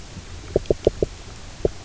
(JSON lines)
{"label": "biophony, knock croak", "recorder": "SoundTrap 300"}